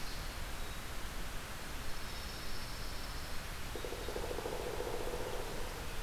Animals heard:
Pine Warbler (Setophaga pinus), Pileated Woodpecker (Dryocopus pileatus), Red-eyed Vireo (Vireo olivaceus)

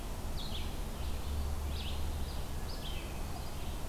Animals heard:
Red-eyed Vireo (Vireo olivaceus)

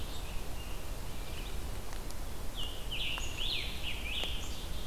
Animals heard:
Red-eyed Vireo (Vireo olivaceus), Scarlet Tanager (Piranga olivacea), Black-capped Chickadee (Poecile atricapillus)

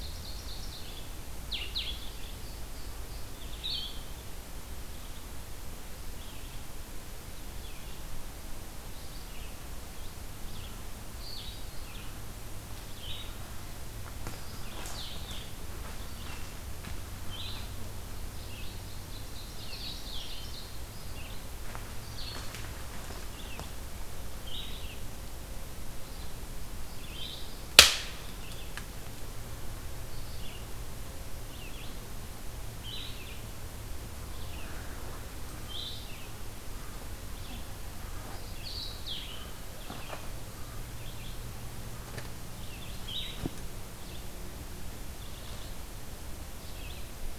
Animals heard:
Song Sparrow (Melospiza melodia), Ovenbird (Seiurus aurocapilla), Red-eyed Vireo (Vireo olivaceus), Blue-headed Vireo (Vireo solitarius)

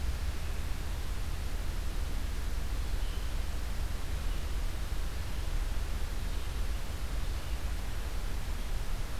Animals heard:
Red-eyed Vireo (Vireo olivaceus)

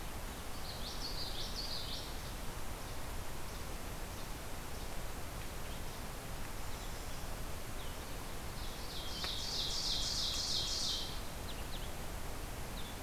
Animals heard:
Common Yellowthroat (Geothlypis trichas), Ovenbird (Seiurus aurocapilla), Blue-headed Vireo (Vireo solitarius)

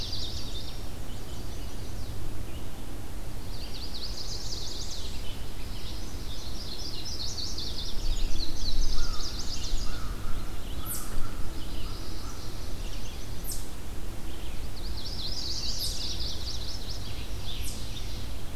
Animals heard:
Chestnut-sided Warbler (Setophaga pensylvanica), Red-eyed Vireo (Vireo olivaceus), Yellow Warbler (Setophaga petechia), American Crow (Corvus brachyrhynchos), Ovenbird (Seiurus aurocapilla), Indigo Bunting (Passerina cyanea), Eastern Chipmunk (Tamias striatus)

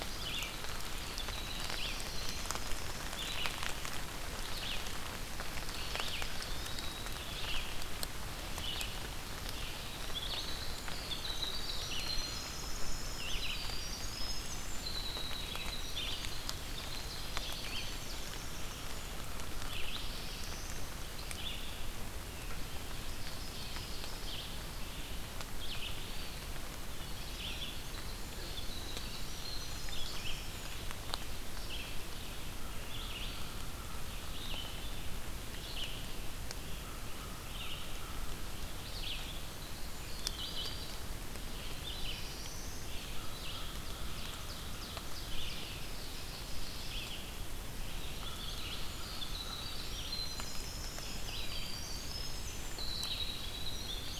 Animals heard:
American Crow (Corvus brachyrhynchos), Ovenbird (Seiurus aurocapilla), Eastern Wood-Pewee (Contopus virens), Winter Wren (Troglodytes hiemalis), Black-throated Blue Warbler (Setophaga caerulescens), Red-eyed Vireo (Vireo olivaceus)

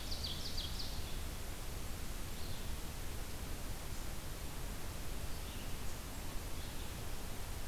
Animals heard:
Ovenbird (Seiurus aurocapilla), Red-eyed Vireo (Vireo olivaceus)

